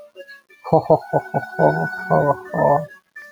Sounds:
Laughter